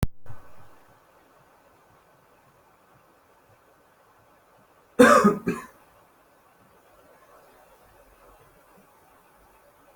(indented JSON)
{
  "expert_labels": [
    {
      "quality": "good",
      "cough_type": "unknown",
      "dyspnea": false,
      "wheezing": false,
      "stridor": false,
      "choking": false,
      "congestion": false,
      "nothing": true,
      "diagnosis": "upper respiratory tract infection",
      "severity": "mild"
    }
  ],
  "age": 32,
  "gender": "male",
  "respiratory_condition": false,
  "fever_muscle_pain": false,
  "status": "healthy"
}